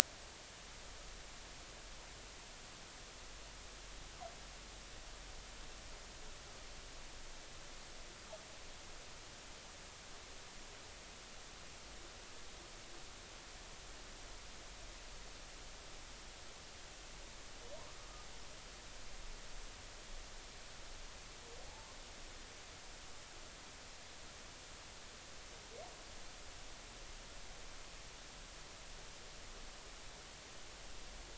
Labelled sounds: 17.7	18.1	humpback whale, 0.90 to 1.3 kHz

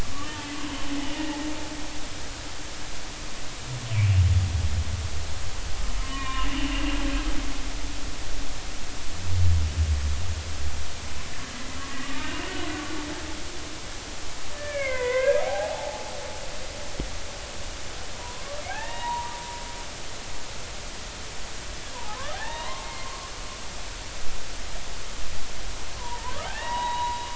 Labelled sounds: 0.2	0.5	humpback whale, 1.7 to 1.9 kHz
1.1	1.4	humpback whale, 1.1 to 1.2 kHz
6.0	6.5	humpback whale, 0.96 to 3.8 kHz
11.9	12.5	humpback whale, 1.1 to 2.9 kHz
14.5	16.1	humpback whale, 0.80 to 2.7 kHz
18.1	19.4	humpback whale, 0.80 to 3.9 kHz
21.9	23.3	humpback whale, 0.80 to 4.2 kHz
26.0	27.2	humpback whale, 0.80 to 3.9 kHz

